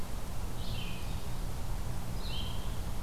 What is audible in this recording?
Red-eyed Vireo